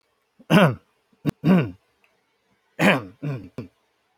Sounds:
Throat clearing